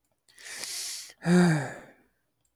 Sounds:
Sigh